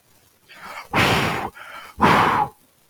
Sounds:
Sigh